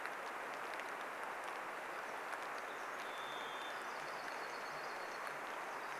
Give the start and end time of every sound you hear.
0s-6s: rain
2s-4s: Varied Thrush song
2s-6s: Pacific Wren song
4s-6s: Dark-eyed Junco song

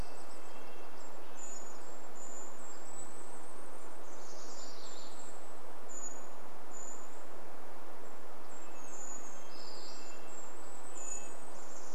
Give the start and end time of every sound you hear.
0s-2s: Red-breasted Nuthatch song
0s-6s: Golden-crowned Kinglet song
0s-8s: Brown Creeper call
8s-10s: Brown Creeper song
8s-12s: Golden-crowned Kinglet song
8s-12s: Red-breasted Nuthatch song
10s-12s: Brown Creeper call

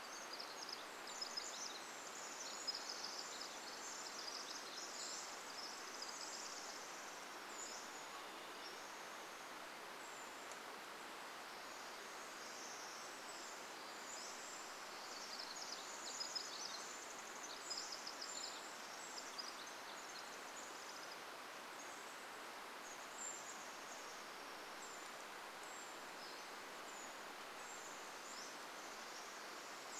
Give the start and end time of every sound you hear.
0s-2s: Brown Creeper call
0s-8s: Pacific Wren song
4s-10s: Pacific-slope Flycatcher song
10s-14s: Brown Creeper call
12s-22s: Pacific Wren song
14s-16s: Pacific-slope Flycatcher song
18s-28s: Brown Creeper call
22s-24s: Chestnut-backed Chickadee call
26s-30s: Pacific-slope Flycatcher song
28s-30s: Pacific Wren song

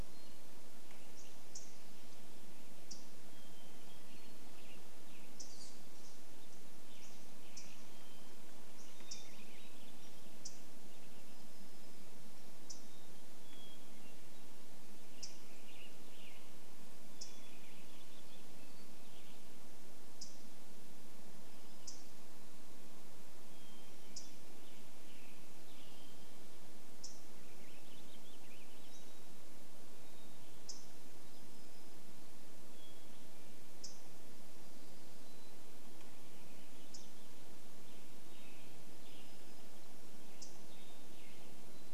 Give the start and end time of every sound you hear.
0s-2s: Hammond's Flycatcher song
0s-22s: unidentified bird chip note
2s-4s: Hermit Thrush song
4s-6s: unidentified sound
4s-12s: Western Tanager song
8s-10s: Hermit Thrush song
8s-10s: Warbling Vireo song
12s-14s: Hermit Thrush song
14s-18s: Western Tanager song
16s-20s: Hermit Thrush song
22s-24s: Hermit Thrush song
24s-26s: Western Tanager song
24s-34s: unidentified bird chip note
26s-30s: Warbling Vireo song
28s-36s: Hermit Thrush song
36s-38s: Warbling Vireo song
36s-38s: unidentified bird chip note
38s-42s: Western Tanager song
40s-42s: Hermit Thrush song
40s-42s: unidentified bird chip note

